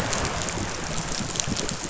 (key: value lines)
label: biophony, chatter
recorder: SoundTrap 500